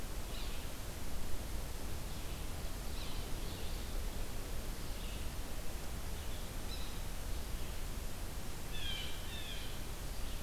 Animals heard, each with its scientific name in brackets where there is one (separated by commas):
Yellow-bellied Sapsucker (Sphyrapicus varius), Blue Jay (Cyanocitta cristata), Red-eyed Vireo (Vireo olivaceus)